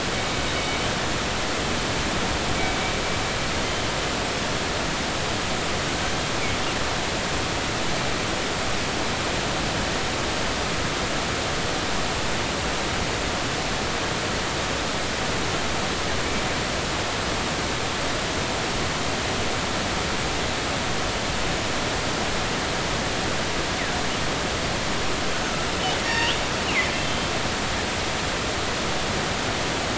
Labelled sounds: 2.5	2.8	killer whale, northern resident, G clan, 2.2 to 2.3 kHz
25.4	25.7	killer whale, northern resident, G clan, 1.3 to 1.5 kHz
26.0	27.3	killer whale, northern resident, G clan, 0.86 to 4.7 kHz

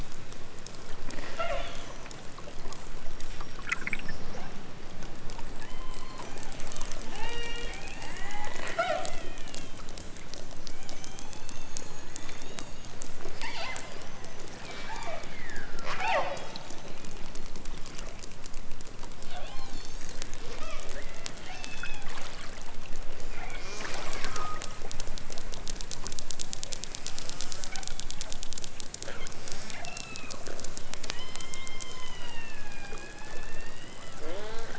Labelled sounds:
1.3	2.1	killer whale, southern Alaska resident, 0.23 to 6.5 kHz
5.5	6.3	killer whale, southern Alaska resident, 0.51 to 4.6 kHz
7.1	7.8	killer whale, southern Alaska resident, 0.28 to 6.5 kHz
8.1	9.9	killer whale, southern Alaska resident, 0.28 to 5.7 kHz
10.6	13.0	killer whale, southern Alaska resident, 1.9 to 7.2 kHz
13.4	16.5	killer whale, southern Alaska resident, 0.32 to 8.0 kHz
19.2	22.1	killer whale, southern Alaska resident, 0.37 to 8.0 kHz
23.3	24.8	killer whale, southern Alaska resident, 0.51 to 8.0 kHz
27.1	28.0	killer whale, southern Alaska resident, 0.78 to 8.0 kHz
29.3	30.3	killer whale, southern Alaska resident, 0.92 to 8.0 kHz
30.9	34.7	killer whale, southern Alaska resident, 0.23 to 8.0 kHz

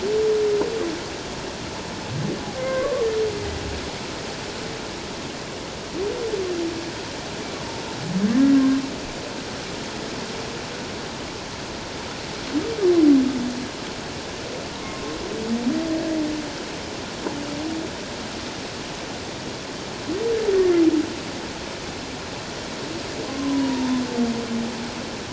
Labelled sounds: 2.7	3.1	humpback whale, 1.0 to 1.2 kHz
8.3	8.8	humpback whale, 1.0 to 2.0 kHz
14.7	15.2	humpback whale, 0.88 to 1.1 kHz
23.2	23.9	humpback whale, 0.88 to 1.1 kHz

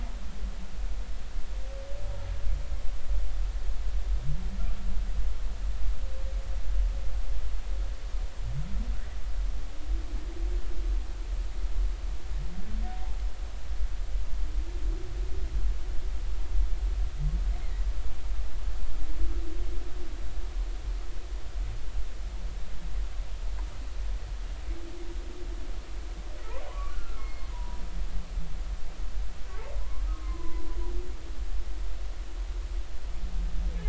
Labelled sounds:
26.7	27.8	humpback whale, 0.90 to 4.4 kHz
29.8	30.6	humpback whale, 0.93 to 1.2 kHz

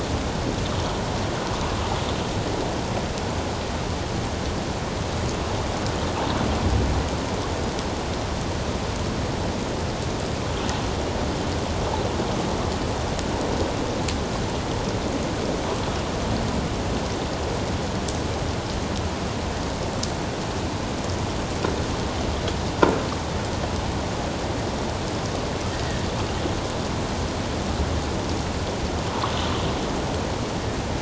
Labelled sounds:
22.8	23.0	croaking sound likely from a nearby submerged object, 1.3 to 1.5 kHz

